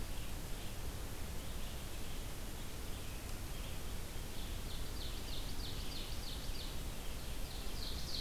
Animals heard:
Ovenbird (Seiurus aurocapilla)
Red-eyed Vireo (Vireo olivaceus)

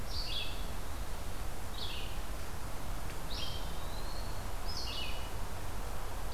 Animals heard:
Eastern Wood-Pewee (Contopus virens)
Red-eyed Vireo (Vireo olivaceus)

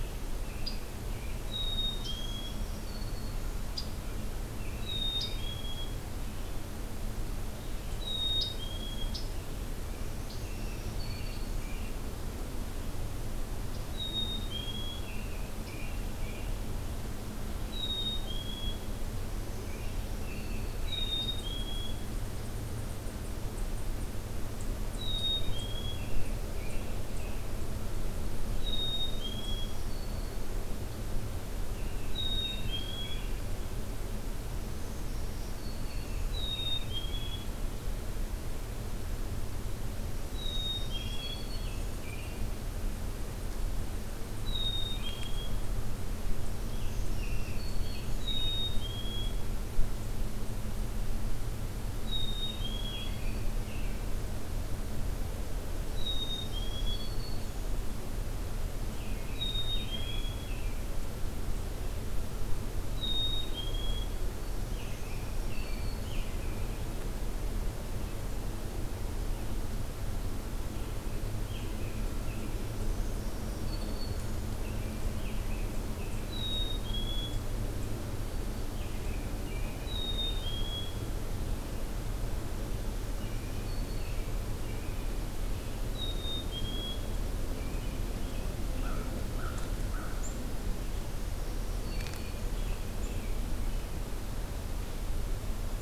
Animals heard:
Black-throated Green Warbler (Setophaga virens)
Black-capped Chickadee (Poecile atricapillus)
American Crow (Corvus brachyrhynchos)
American Robin (Turdus migratorius)
Red-eyed Vireo (Vireo olivaceus)
Scarlet Tanager (Piranga olivacea)

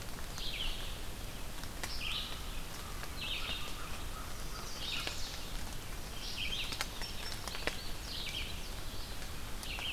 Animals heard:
Red-eyed Vireo (Vireo olivaceus)
Indigo Bunting (Passerina cyanea)
Chestnut-sided Warbler (Setophaga pensylvanica)
American Crow (Corvus brachyrhynchos)

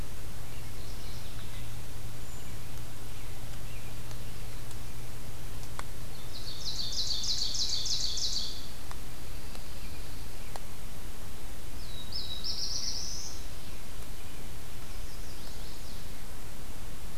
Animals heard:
Mourning Warbler (Geothlypis philadelphia)
Chestnut-sided Warbler (Setophaga pensylvanica)
American Robin (Turdus migratorius)
Black-throated Blue Warbler (Setophaga caerulescens)
Pine Warbler (Setophaga pinus)
Brown Creeper (Certhia americana)
Ovenbird (Seiurus aurocapilla)

